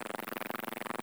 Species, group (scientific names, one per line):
Bicolorana bicolor
Orthoptera